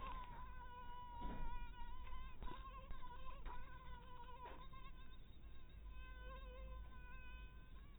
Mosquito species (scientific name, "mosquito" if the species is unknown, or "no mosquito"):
mosquito